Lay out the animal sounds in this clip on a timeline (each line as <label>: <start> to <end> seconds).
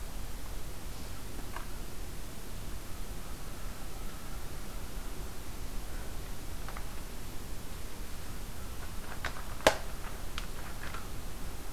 American Crow (Corvus brachyrhynchos): 3.1 to 6.2 seconds